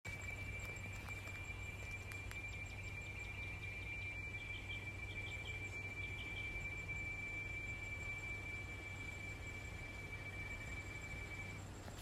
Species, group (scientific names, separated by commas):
Quesada gigas, Cicadidae